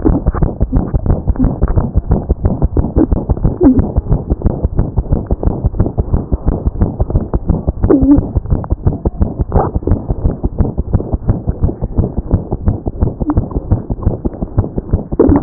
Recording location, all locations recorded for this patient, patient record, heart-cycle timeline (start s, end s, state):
pulmonary valve (PV)
aortic valve (AV)+pulmonary valve (PV)+mitral valve (MV)
#Age: Infant
#Sex: Female
#Height: 57.0 cm
#Weight: 3.9 kg
#Pregnancy status: False
#Murmur: Present
#Murmur locations: aortic valve (AV)+mitral valve (MV)+pulmonary valve (PV)
#Most audible location: pulmonary valve (PV)
#Systolic murmur timing: Holosystolic
#Systolic murmur shape: Plateau
#Systolic murmur grading: I/VI
#Systolic murmur pitch: Low
#Systolic murmur quality: Blowing
#Diastolic murmur timing: Early-diastolic
#Diastolic murmur shape: Decrescendo
#Diastolic murmur grading: I/IV
#Diastolic murmur pitch: High
#Diastolic murmur quality: Harsh
#Outcome: Abnormal
#Campaign: 2014 screening campaign
0.00	4.03	unannotated
4.03	4.10	diastole
4.10	4.20	S1
4.20	4.29	systole
4.29	4.36	S2
4.36	4.44	diastole
4.44	4.53	S1
4.53	4.62	systole
4.62	4.68	S2
4.68	4.78	diastole
4.78	4.88	S1
4.88	4.97	systole
4.97	5.03	S2
5.03	5.12	diastole
5.12	5.22	S1
5.22	5.31	systole
5.31	5.36	S2
5.36	5.46	diastole
5.46	5.56	S1
5.56	5.65	systole
5.65	5.70	S2
5.70	5.78	diastole
5.78	5.89	S1
5.89	5.98	systole
5.98	6.03	S2
6.03	6.12	diastole
6.12	6.23	S1
6.23	6.32	systole
6.32	6.37	S2
6.37	6.47	diastole
6.47	15.42	unannotated